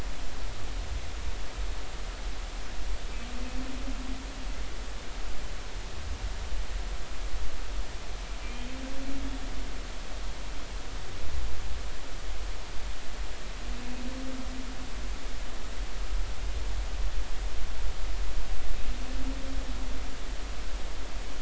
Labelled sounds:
8.4	8.7	humpback whale, 2.3 to 2.5 kHz

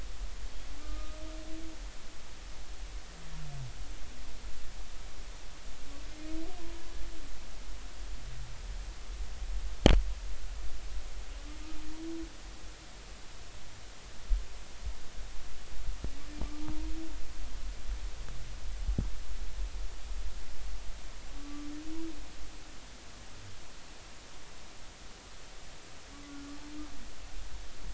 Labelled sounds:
0.8	1.2	humpback whale, 1.2 to 1.3 kHz
16.6	16.9	humpback whale, 0.80 to 0.99 kHz
21.4	21.7	humpback whale, 1.1 to 1.3 kHz
26.1	26.5	humpback whale, 1.1 to 1.5 kHz

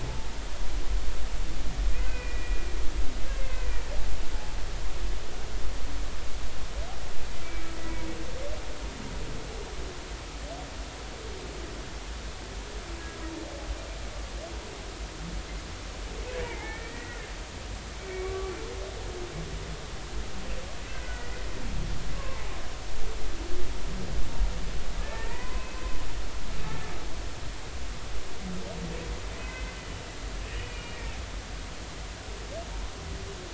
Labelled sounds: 2.1	2.6	humpback whale, 1.9 to 2.6 kHz
16.4	17.2	humpback whale, 1.7 to 2.4 kHz
18.1	18.5	humpback whale, 1.1 to 2.4 kHz
21.0	21.3	humpback whale, 1.4 to 1.5 kHz
22.1	22.4	humpback whale, 0.99 to 1.2 kHz
25.0	25.7	humpback whale, 0.90 to 2.1 kHz
29.4	29.8	humpback whale, 2.0 to 2.6 kHz
30.7	31.2	humpback whale, 2.2 to 2.5 kHz
31.5	32.0	humpback whale, 2.8 to 3.0 kHz

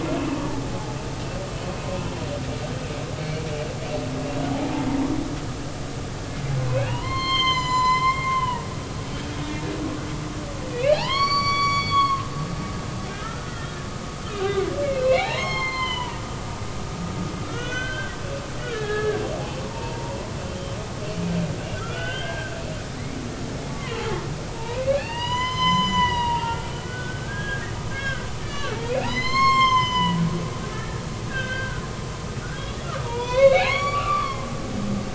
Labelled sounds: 3.2	3.5	humpback whale, 2.1 to 4.5 kHz
6.6	9.2	humpback whale, 0.86 to 7.5 kHz
9.5	9.7	humpback whale, 1.7 to 2.5 kHz
10.7	12.3	humpback whale, 0.80 to 5.8 kHz
13.1	13.8	humpback whale, 1.2 to 1.9 kHz
14.4	16.2	humpback whale, 0.80 to 7.3 kHz
17.5	19.3	humpback whale, 1.2 to 3.6 kHz
19.6	20.8	humpback whale, 0.86 to 3.2 kHz
21.8	22.5	humpback whale, 1.2 to 3.6 kHz
23.7	24.0	humpback whale, 0.96 to 1.2 kHz
24.5	30.2	humpback whale, 0.80 to 7.6 kHz
30.7	31.0	humpback whale, 1.7 to 1.9 kHz
31.3	34.5	humpback whale, 0.86 to 6.9 kHz

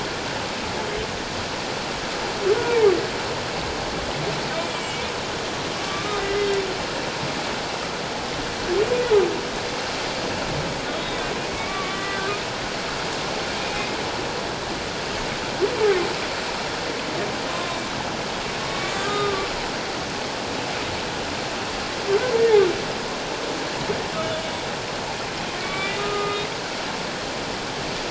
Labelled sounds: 2.6	2.9	humpback whale, 0.81 to 1.0 kHz
4.7	5.1	humpback whale, 2.2 to 2.4 kHz
5.8	6.5	humpback whale, 1.1 to 2.1 kHz
11.0	12.2	humpback whale, 1.1 to 3.8 kHz
13.6	13.9	humpback whale, 2.4 to 2.6 kHz
18.6	19.5	humpback whale, 1.1 to 3.8 kHz
25.6	26.5	humpback whale, 1.1 to 3.7 kHz

